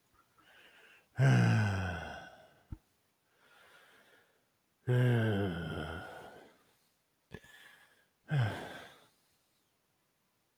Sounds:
Sigh